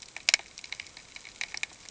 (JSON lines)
{"label": "ambient", "recorder": "HydroMoth"}